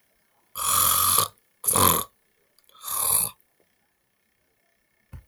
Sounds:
Throat clearing